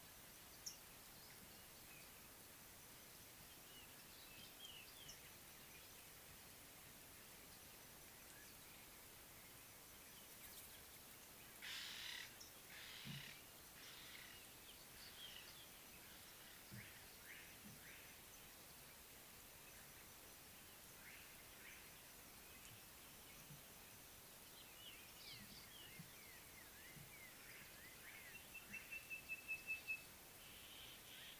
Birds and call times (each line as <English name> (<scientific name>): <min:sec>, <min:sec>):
Ring-necked Dove (Streptopelia capicola): 0:11.8
Sulphur-breasted Bushshrike (Telophorus sulfureopectus): 0:29.2